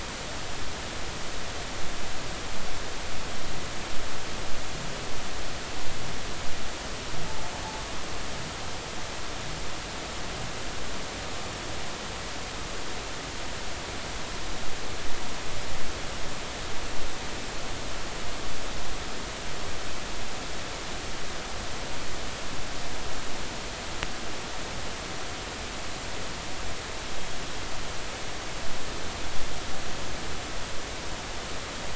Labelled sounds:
7.3	7.5	vessel noise, 0.80 to 0.93 kHz

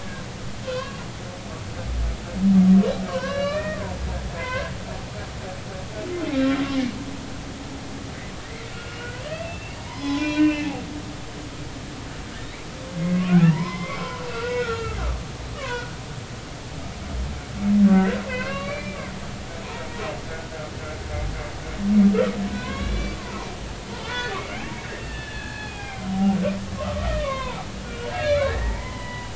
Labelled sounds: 0.6	1.0	humpback whale, 0.96 to 3.3 kHz
3.1	3.8	humpback whale, 0.96 to 4.1 kHz
4.4	4.7	humpback whale, 0.96 to 2.7 kHz
8.4	10.8	humpback whale, 0.90 to 5.5 kHz
13.1	15.9	humpback whale, 0.90 to 5.6 kHz
17.9	19.0	humpback whale, 0.96 to 2.8 kHz
22.5	26.2	humpback whale, 0.80 to 4.4 kHz
26.8	29.3	humpback whale, 0.80 to 4.3 kHz

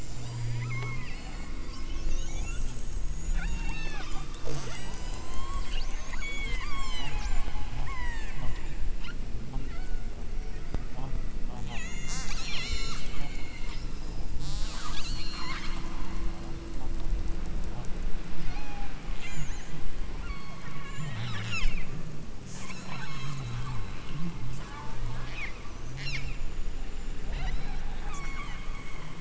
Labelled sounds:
0.0	2.8	killer whale, southern Alaska resident, 0.71 to 8.0 kHz
3.3	8.4	killer whale, southern Alaska resident, 0.32 to 8.0 kHz
9.6	10.2	killer whale, southern Alaska resident, 1.1 to 5.4 kHz
11.7	13.8	killer whale, southern Alaska resident, 1.1 to 8.0 kHz
14.3	15.8	killer whale, southern Alaska resident, 0.48 to 8.0 kHz
18.4	19.8	killer whale, southern Alaska resident, 0.52 to 8.0 kHz
20.2	21.8	killer whale, southern Alaska resident, 0.57 to 8.0 kHz
22.4	26.4	killer whale, southern Alaska resident, 0.62 to 8.0 kHz
27.3	29.1	killer whale, southern Alaska resident, 0.52 to 8.0 kHz

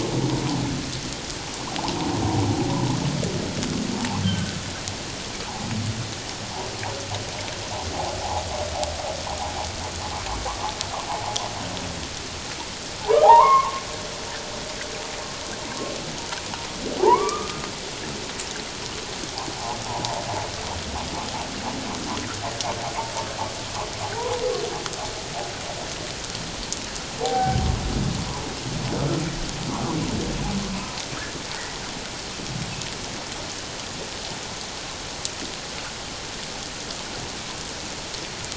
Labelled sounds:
4.2	4.6	humpback whale, 1.4 to 3.2 kHz
11.1	11.4	humpback whale, 0.78 to 1.1 kHz
13.0	13.8	humpback whale, 0.78 to 2.2 kHz
17.0	17.6	humpback whale, 0.78 to 1.3 kHz
19.5	19.8	humpback whale, 0.78 to 1.1 kHz
27.2	27.6	humpback whale, 0.78 to 1.6 kHz

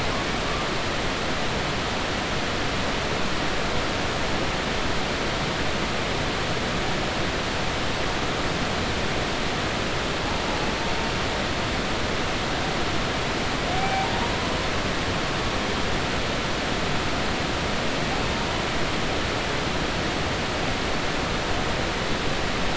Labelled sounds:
13.8	14.1	humpback whale, 0.80 to 2.4 kHz

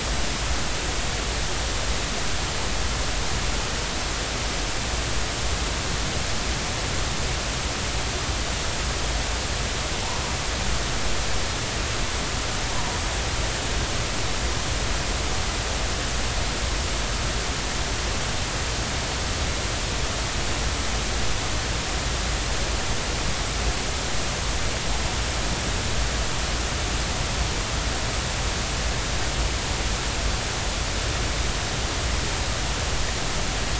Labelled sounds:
12.7	13.0	humpback whale, 0.90 to 1.1 kHz

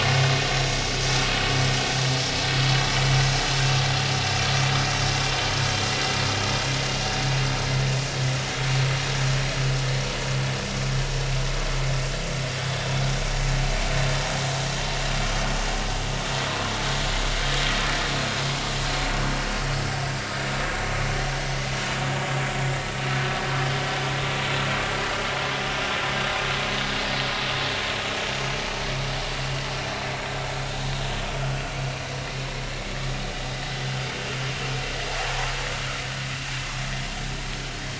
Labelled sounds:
3.2	3.5	vessel noise, 6.3 to 6.5 kHz
4.7	4.9	vessel noise, 5.6 to 5.8 kHz

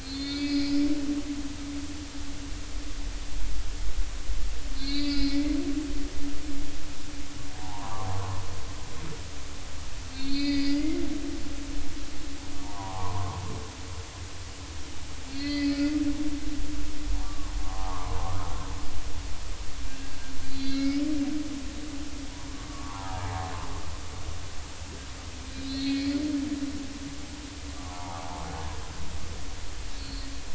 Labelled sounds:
0.0	0.7	humpback whale, 2.1 to 4.9 kHz
4.8	5.5	humpback whale, 1.9 to 4.9 kHz
7.5	8.1	humpback whale, 0.80 to 1.3 kHz
10.1	11.0	humpback whale, 1.9 to 5.0 kHz
12.6	13.4	humpback whale, 0.80 to 1.2 kHz
15.3	15.8	humpback whale, 1.9 to 4.8 kHz
17.2	18.5	humpback whale, 0.80 to 1.3 kHz
20.5	21.0	humpback whale, 2.1 to 4.7 kHz
22.7	23.5	humpback whale, 0.80 to 1.4 kHz
25.5	26.2	humpback whale, 2.2 to 4.5 kHz
27.8	28.2	humpback whale, 0.80 to 1.2 kHz
30.0	30.3	humpback whale, 4.0 to 4.4 kHz

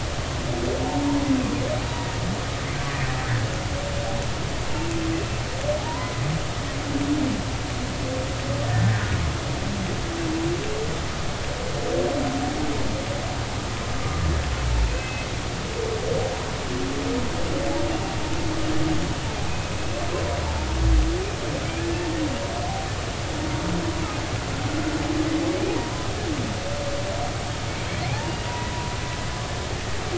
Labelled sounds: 5.1	5.4	humpback whale, 2.6 to 2.7 kHz
5.9	6.1	humpback whale, 0.90 to 1.1 kHz
8.7	9.1	humpback whale, 1.6 to 1.9 kHz
14.9	15.3	humpback whale, 2.5 to 2.7 kHz
19.5	19.7	humpback whale, 2.4 to 2.6 kHz
21.6	21.9	humpback whale, 2.2 to 2.6 kHz
25.7	26.1	humpback whale, 0.90 to 1.1 kHz
28.1	28.5	humpback whale, 0.80 to 2.9 kHz

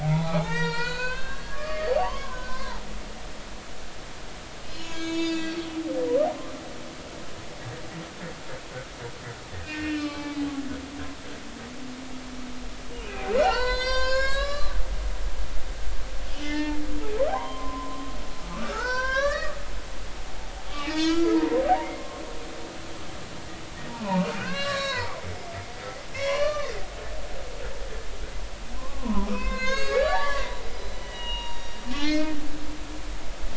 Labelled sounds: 0.0	2.8	humpback whale, 0.80 to 5.8 kHz
4.7	5.6	humpback whale, 1.6 to 7.7 kHz
6.2	6.5	humpback whale, 5.8 to 6.0 kHz
9.7	10.4	humpback whale, 0.83 to 4.2 kHz
13.0	14.8	humpback whale, 0.80 to 7.9 kHz
16.3	16.8	humpback whale, 0.83 to 5.5 kHz
17.3	18.1	humpback whale, 0.80 to 1.1 kHz
18.4	19.6	humpback whale, 0.83 to 6.0 kHz
20.7	21.6	humpback whale, 0.90 to 4.8 kHz
21.9	22.2	humpback whale, 1.0 to 1.1 kHz
23.9	25.2	humpback whale, 0.80 to 5.6 kHz
26.1	27.6	humpback whale, 0.96 to 5.7 kHz
28.8	32.3	humpback whale, 0.80 to 6.8 kHz

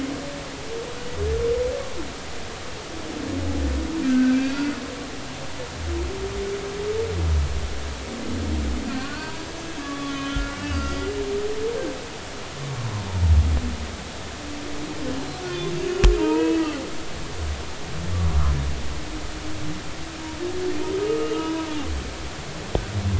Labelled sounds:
4.0	4.8	humpback whale, 1.3 to 2.5 kHz
8.9	11.1	humpback whale, 0.90 to 6.5 kHz
12.8	13.0	humpback whale, 0.96 to 1.2 kHz
15.4	15.7	humpback whale, 2.4 to 2.5 kHz
16.2	16.6	humpback whale, 0.86 to 2.7 kHz
21.2	21.7	humpback whale, 0.93 to 2.9 kHz

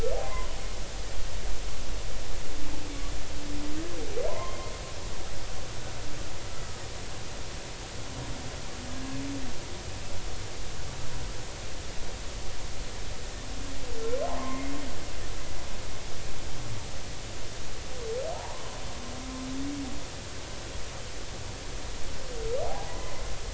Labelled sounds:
0.2	0.5	humpback whale, 0.96 to 1.1 kHz
4.3	4.7	humpback whale, 0.86 to 2.1 kHz
6.5	6.8	killer whale, Bigg's (transient), 1.2 to 1.4 kHz
8.9	9.2	humpback whale, 1.6 to 1.7 kHz
14.2	14.7	humpback whale, 0.80 to 2.2 kHz
18.3	18.8	humpback whale, 0.80 to 1.1 kHz
22.7	23.2	humpback whale, 0.80 to 2.1 kHz

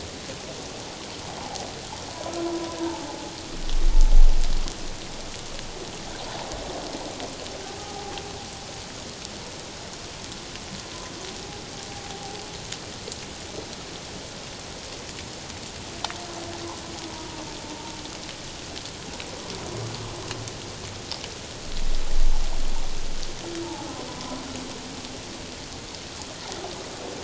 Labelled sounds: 1.4	1.6	humpback whale, 0.78 to 1.0 kHz
2.8	3.3	humpback whale, 0.78 to 1.0 kHz
7.8	8.1	humpback whale, 0.78 to 1.3 kHz
17.1	17.4	humpback whale, 0.88 to 1.0 kHz
23.6	24.4	humpback whale, 0.78 to 1.1 kHz

